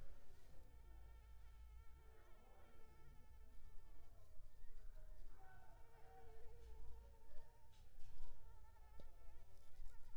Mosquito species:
Anopheles arabiensis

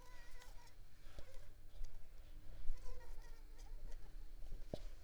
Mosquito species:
Culex pipiens complex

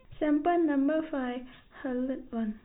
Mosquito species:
no mosquito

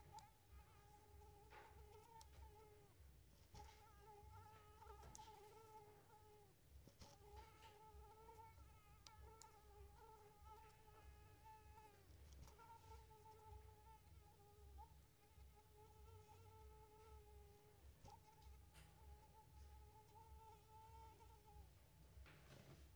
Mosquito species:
Anopheles coustani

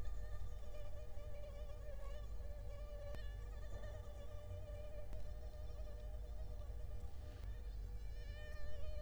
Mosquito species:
Culex quinquefasciatus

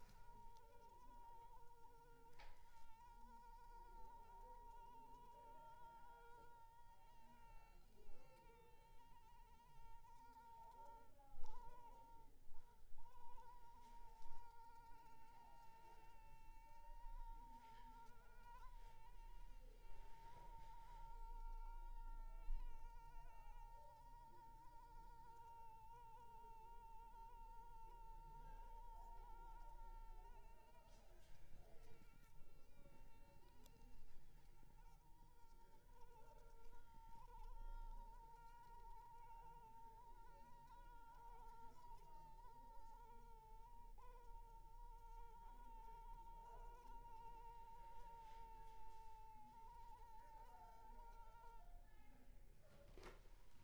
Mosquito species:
Anopheles arabiensis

